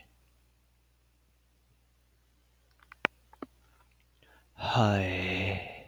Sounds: Sigh